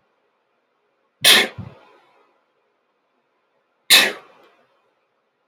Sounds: Sneeze